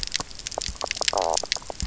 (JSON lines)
{"label": "biophony, knock croak", "recorder": "SoundTrap 300"}